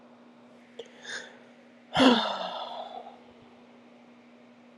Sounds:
Sigh